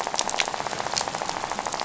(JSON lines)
{"label": "biophony, rattle", "recorder": "SoundTrap 500"}